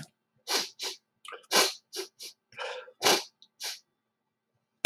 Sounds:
Sniff